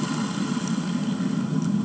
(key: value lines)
label: anthrophony, boat engine
recorder: HydroMoth